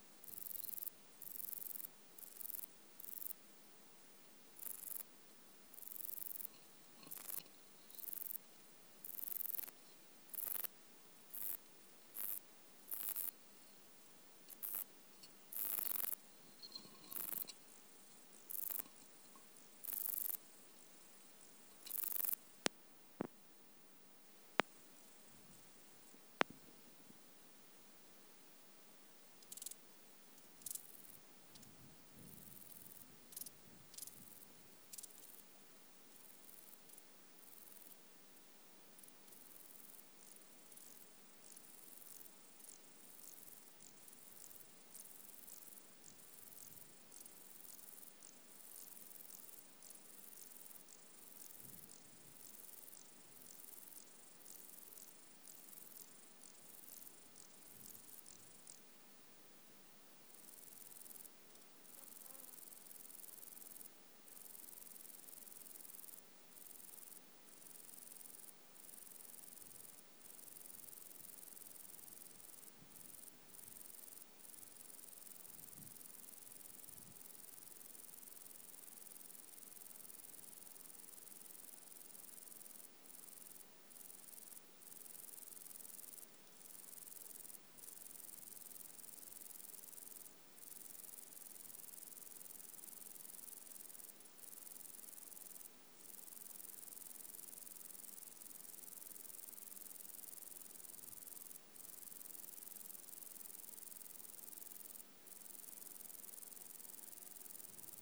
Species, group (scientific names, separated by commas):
Bicolorana bicolor, Orthoptera